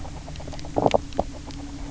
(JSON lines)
{"label": "biophony, knock croak", "recorder": "SoundTrap 300"}